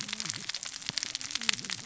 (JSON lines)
{"label": "biophony, cascading saw", "recorder": "SoundTrap 600 or HydroMoth"}